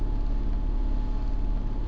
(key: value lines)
label: anthrophony, boat engine
recorder: SoundTrap 300